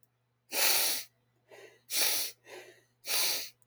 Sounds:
Sniff